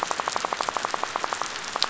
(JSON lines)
{"label": "biophony, rattle", "recorder": "SoundTrap 500"}